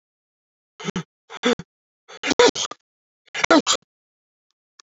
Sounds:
Sneeze